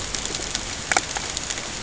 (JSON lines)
{"label": "ambient", "recorder": "HydroMoth"}